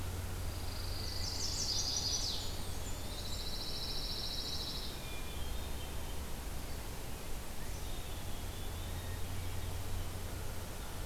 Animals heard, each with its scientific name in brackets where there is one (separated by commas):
Black-capped Chickadee (Poecile atricapillus), Blackburnian Warbler (Setophaga fusca), Hermit Thrush (Catharus guttatus), Eastern Wood-Pewee (Contopus virens), Chestnut-sided Warbler (Setophaga pensylvanica), Pine Warbler (Setophaga pinus)